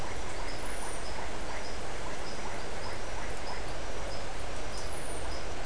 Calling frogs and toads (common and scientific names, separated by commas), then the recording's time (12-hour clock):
marbled tropical bullfrog (Adenomera marmorata), Iporanga white-lipped frog (Leptodactylus notoaktites)
5:30pm